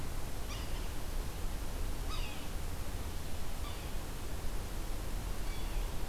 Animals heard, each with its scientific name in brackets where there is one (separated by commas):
Yellow-bellied Sapsucker (Sphyrapicus varius)